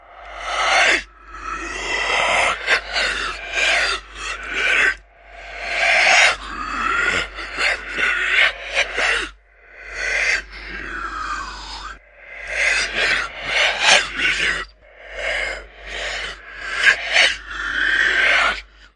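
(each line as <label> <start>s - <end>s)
Very distorted low deep voice making noise in an irregular pattern. 0.0s - 18.9s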